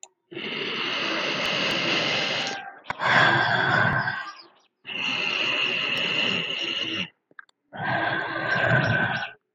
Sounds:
Sigh